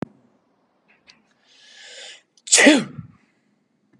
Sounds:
Sneeze